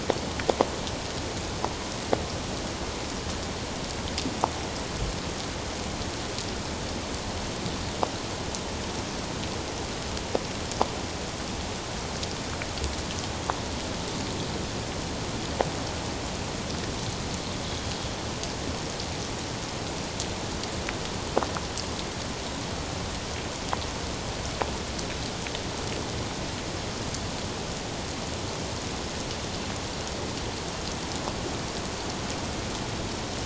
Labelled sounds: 17.7	17.9	Pacific white-sided dolphin, 3.2 to 3.4 kHz

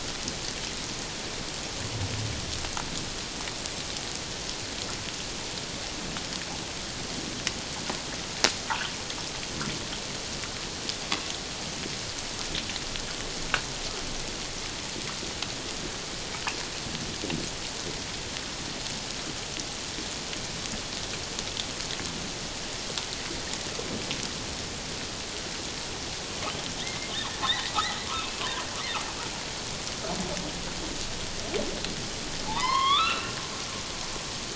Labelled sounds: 26.8	28.6	humpback whale, 0.91 to 2.8 kHz
32.5	33.4	humpback whale, 0.78 to 4.1 kHz

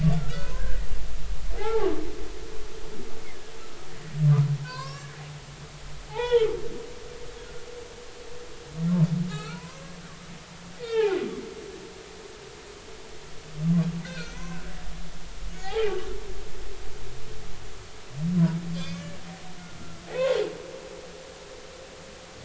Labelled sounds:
0.1	0.8	humpback whale, 1.3 to 1.7 kHz
1.6	1.9	humpback whale, 0.80 to 0.96 kHz
4.6	5.1	humpback whale, 0.96 to 5.8 kHz
6.1	6.5	humpback whale, 0.80 to 3.5 kHz
9.5	9.9	humpback whale, 0.93 to 1.1 kHz
10.3	11.1	humpback whale, 1.2 to 4.4 kHz
14.0	14.5	humpback whale, 1.3 to 5.9 kHz
15.6	16.0	humpback whale, 0.80 to 0.93 kHz
18.8	19.1	humpback whale, 2.1 to 3.6 kHz

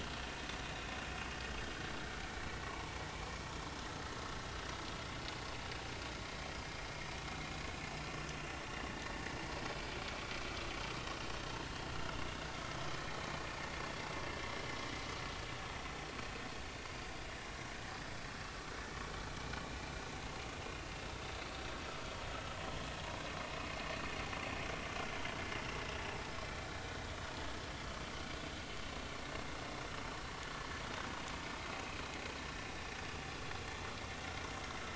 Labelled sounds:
2.6	2.9	vessel noise, 0.86 to 1.2 kHz
31.7	32.0	vessel noise, 2.4 to 2.6 kHz

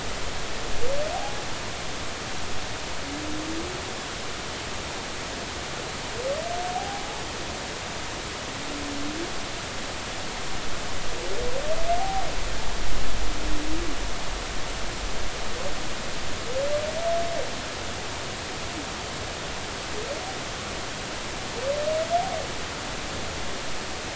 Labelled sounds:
6.7	7.0	humpback whale, 0.80 to 0.86 kHz
12.0	12.2	humpback whale, 0.80 to 0.83 kHz

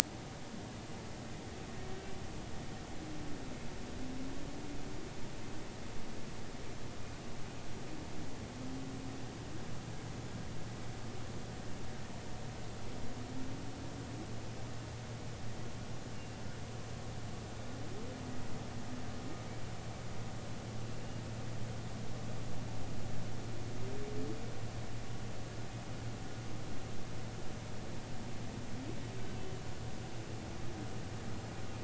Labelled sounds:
16.1	16.4	humpback whale, 2.7 to 2.8 kHz

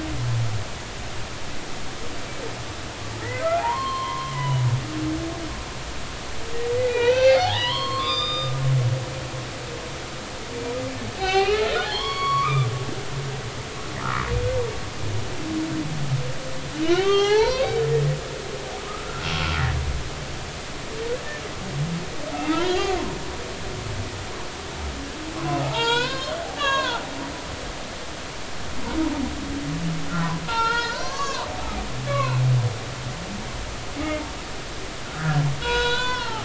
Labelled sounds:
3.6	4.6	humpback whale, 0.80 to 4.3 kHz
6.7	8.5	humpback whale, 0.80 to 5.1 kHz
11.2	12.7	humpback whale, 0.80 to 4.5 kHz
14.0	14.3	humpback whale, 0.99 to 1.5 kHz
16.9	17.8	humpback whale, 0.80 to 6.2 kHz
18.8	19.3	humpback whale, 1.0 to 1.5 kHz
19.6	19.8	humpback whale, 1.6 to 2.0 kHz
22.3	23.1	humpback whale, 0.80 to 4.8 kHz
25.6	27.0	humpback whale, 0.80 to 5.5 kHz
30.1	31.5	humpback whale, 0.83 to 5.7 kHz
32.1	32.5	humpback whale, 0.83 to 2.8 kHz
34.0	34.3	humpback whale, 2.0 to 2.3 kHz
35.0	36.4	humpback whale, 0.80 to 6.3 kHz

